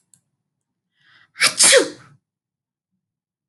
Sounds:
Sneeze